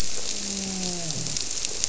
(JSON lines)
{"label": "biophony, grouper", "recorder": "SoundTrap 300"}